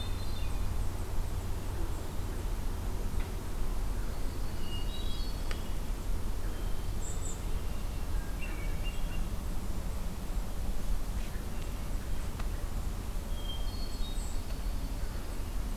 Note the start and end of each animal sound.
[0.00, 0.77] Hermit Thrush (Catharus guttatus)
[3.94, 5.59] Dark-eyed Junco (Junco hyemalis)
[4.24, 5.97] Hermit Thrush (Catharus guttatus)
[6.40, 9.44] Hermit Thrush (Catharus guttatus)
[13.17, 14.91] Hermit Thrush (Catharus guttatus)
[14.24, 15.76] Dark-eyed Junco (Junco hyemalis)

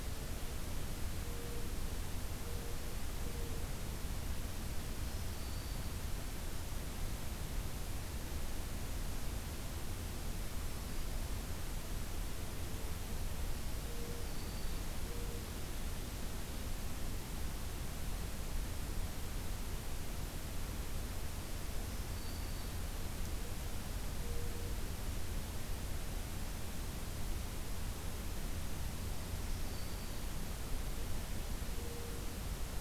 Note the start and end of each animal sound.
[4.90, 5.86] Black-throated Green Warbler (Setophaga virens)
[14.14, 14.83] Black-throated Green Warbler (Setophaga virens)
[21.73, 22.73] Black-throated Green Warbler (Setophaga virens)
[29.40, 30.28] Black-throated Green Warbler (Setophaga virens)

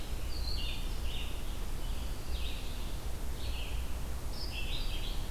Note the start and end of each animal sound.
[0.00, 2.88] Scarlet Tanager (Piranga olivacea)
[0.00, 5.31] Red-eyed Vireo (Vireo olivaceus)

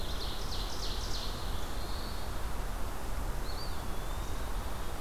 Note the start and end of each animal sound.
[0.00, 1.61] Ovenbird (Seiurus aurocapilla)
[1.09, 2.35] Black-throated Blue Warbler (Setophaga caerulescens)
[3.30, 4.71] Eastern Wood-Pewee (Contopus virens)

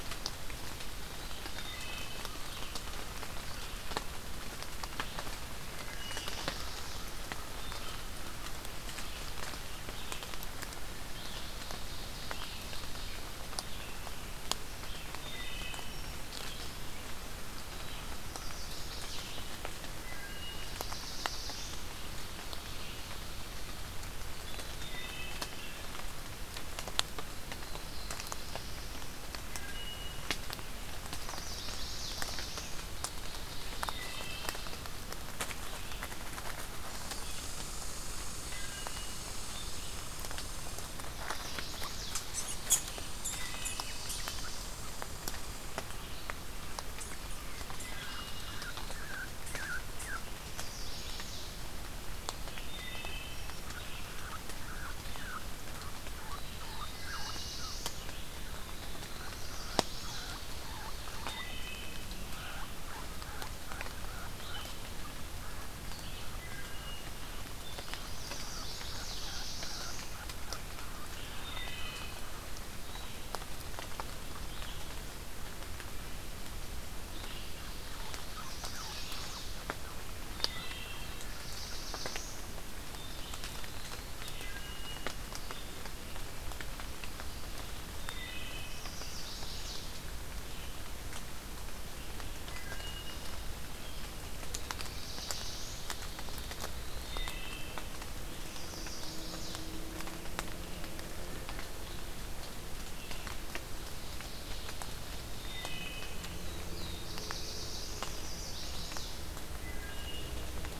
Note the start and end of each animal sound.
[0.00, 24.87] Red-eyed Vireo (Vireo olivaceus)
[1.47, 2.22] Wood Thrush (Hylocichla mustelina)
[5.64, 7.08] Black-throated Blue Warbler (Setophaga caerulescens)
[5.66, 6.62] Wood Thrush (Hylocichla mustelina)
[6.17, 8.16] American Crow (Corvus brachyrhynchos)
[10.86, 13.15] Ovenbird (Seiurus aurocapilla)
[15.10, 16.02] Wood Thrush (Hylocichla mustelina)
[18.24, 19.43] Chestnut-sided Warbler (Setophaga pensylvanica)
[20.00, 20.73] Wood Thrush (Hylocichla mustelina)
[20.09, 21.87] Black-throated Blue Warbler (Setophaga caerulescens)
[24.66, 25.51] Wood Thrush (Hylocichla mustelina)
[27.55, 29.20] Black-throated Blue Warbler (Setophaga caerulescens)
[29.48, 30.30] Wood Thrush (Hylocichla mustelina)
[31.13, 32.19] Chestnut-sided Warbler (Setophaga pensylvanica)
[31.61, 32.76] Black-throated Blue Warbler (Setophaga caerulescens)
[32.74, 34.89] Ovenbird (Seiurus aurocapilla)
[33.90, 34.66] Wood Thrush (Hylocichla mustelina)
[36.57, 41.01] Red Squirrel (Tamiasciurus hudsonicus)
[38.44, 39.24] Wood Thrush (Hylocichla mustelina)
[40.99, 42.19] Chestnut-sided Warbler (Setophaga pensylvanica)
[42.11, 44.79] unknown mammal
[43.12, 43.92] Wood Thrush (Hylocichla mustelina)
[47.80, 50.21] unidentified call
[50.41, 51.45] Chestnut-sided Warbler (Setophaga pensylvanica)
[52.59, 53.34] Wood Thrush (Hylocichla mustelina)
[53.56, 70.70] unidentified call
[56.52, 59.45] Black-throated Blue Warbler (Setophaga caerulescens)
[59.26, 60.31] Chestnut-sided Warbler (Setophaga pensylvanica)
[61.34, 62.02] Wood Thrush (Hylocichla mustelina)
[66.35, 67.24] Wood Thrush (Hylocichla mustelina)
[67.98, 69.17] Chestnut-sided Warbler (Setophaga pensylvanica)
[68.60, 70.10] Black-throated Blue Warbler (Setophaga caerulescens)
[71.29, 72.13] Wood Thrush (Hylocichla mustelina)
[77.48, 80.70] unidentified call
[78.21, 79.68] Chestnut-sided Warbler (Setophaga pensylvanica)
[80.28, 81.10] Wood Thrush (Hylocichla mustelina)
[80.87, 82.42] Black-throated Blue Warbler (Setophaga caerulescens)
[82.90, 84.13] Black-throated Blue Warbler (Setophaga caerulescens)
[84.28, 85.20] Wood Thrush (Hylocichla mustelina)
[87.86, 88.91] Wood Thrush (Hylocichla mustelina)
[88.56, 89.91] Chestnut-sided Warbler (Setophaga pensylvanica)
[92.40, 93.49] Wood Thrush (Hylocichla mustelina)
[94.44, 95.92] Black-throated Blue Warbler (Setophaga caerulescens)
[96.86, 97.79] Wood Thrush (Hylocichla mustelina)
[98.24, 99.62] Chestnut-sided Warbler (Setophaga pensylvanica)
[105.40, 106.20] Wood Thrush (Hylocichla mustelina)
[106.31, 108.18] Black-throated Blue Warbler (Setophaga caerulescens)
[108.09, 109.16] Chestnut-sided Warbler (Setophaga pensylvanica)
[109.43, 110.48] Wood Thrush (Hylocichla mustelina)

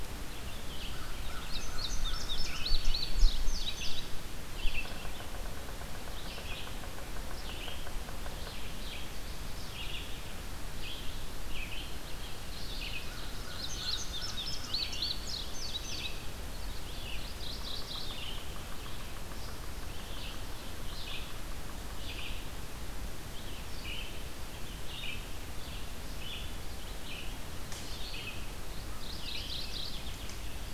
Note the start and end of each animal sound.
[0.00, 22.38] Red-eyed Vireo (Vireo olivaceus)
[0.91, 2.82] American Crow (Corvus brachyrhynchos)
[1.34, 4.17] Indigo Bunting (Passerina cyanea)
[4.72, 8.56] Yellow-bellied Sapsucker (Sphyrapicus varius)
[13.04, 14.75] American Crow (Corvus brachyrhynchos)
[13.51, 16.29] Indigo Bunting (Passerina cyanea)
[16.80, 18.38] Mourning Warbler (Geothlypis philadelphia)
[23.22, 30.73] Red-eyed Vireo (Vireo olivaceus)
[28.80, 30.30] Mourning Warbler (Geothlypis philadelphia)

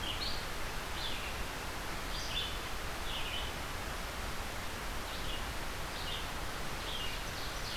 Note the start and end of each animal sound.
[0.00, 7.77] Red-eyed Vireo (Vireo olivaceus)
[6.90, 7.77] Ovenbird (Seiurus aurocapilla)

